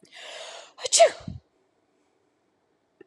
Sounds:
Sneeze